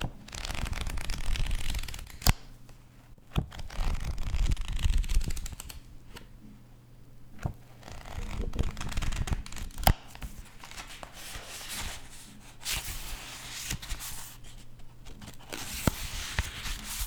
Are cards being played with?
yes